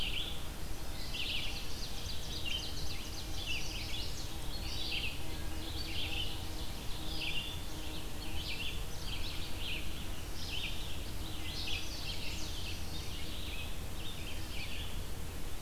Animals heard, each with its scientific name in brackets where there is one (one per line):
Ovenbird (Seiurus aurocapilla)
Red-eyed Vireo (Vireo olivaceus)
Chestnut-sided Warbler (Setophaga pensylvanica)